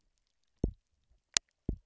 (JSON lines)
{"label": "biophony, double pulse", "recorder": "SoundTrap 300"}